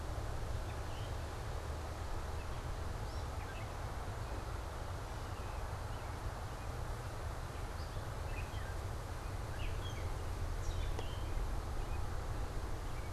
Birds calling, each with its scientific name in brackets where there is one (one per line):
Gray Catbird (Dumetella carolinensis)
American Robin (Turdus migratorius)